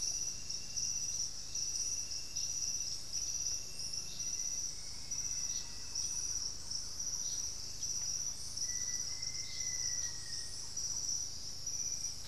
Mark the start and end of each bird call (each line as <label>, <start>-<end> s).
Black-faced Antthrush (Formicarius analis), 3.9-10.8 s
Thrush-like Wren (Campylorhynchus turdinus), 5.0-7.8 s